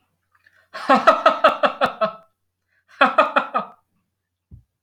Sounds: Laughter